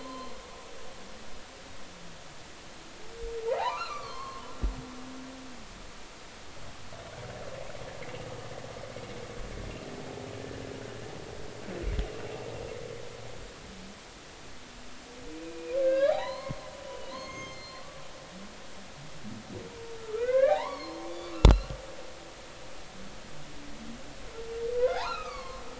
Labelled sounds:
0.0	0.3	humpback whale, 0.99 to 1.2 kHz
3.5	4.5	humpback whale, 0.80 to 4.5 kHz
15.4	17.8	humpback whale, 0.80 to 6.5 kHz
20.0	21.8	humpback whale, 0.80 to 4.8 kHz
24.8	25.6	humpback whale, 0.80 to 4.7 kHz

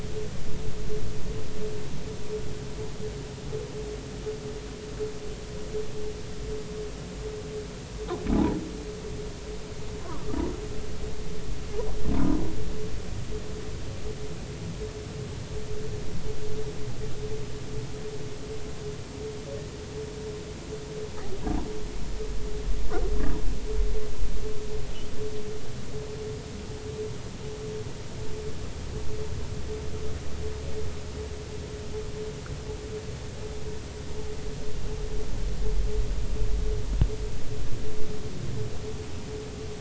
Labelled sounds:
8.3	8.6	humpback whale, 0.80 to 1.0 kHz

